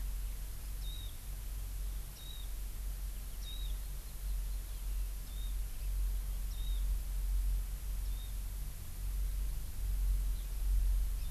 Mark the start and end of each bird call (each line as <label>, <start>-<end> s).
Warbling White-eye (Zosterops japonicus), 0.8-1.1 s
Warbling White-eye (Zosterops japonicus), 2.2-2.5 s
Warbling White-eye (Zosterops japonicus), 3.4-3.7 s
Warbling White-eye (Zosterops japonicus), 5.3-5.5 s
Warbling White-eye (Zosterops japonicus), 6.5-6.8 s
Warbling White-eye (Zosterops japonicus), 8.0-8.3 s